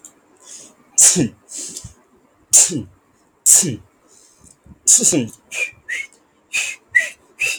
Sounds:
Sneeze